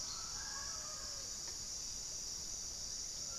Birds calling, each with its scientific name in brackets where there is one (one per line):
Mealy Parrot (Amazona farinosa)
Pale-vented Pigeon (Patagioenas cayennensis)